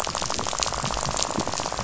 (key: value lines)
label: biophony, rattle
recorder: SoundTrap 500